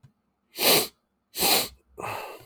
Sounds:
Sniff